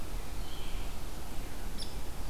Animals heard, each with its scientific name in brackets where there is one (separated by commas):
Hairy Woodpecker (Dryobates villosus), Red-eyed Vireo (Vireo olivaceus)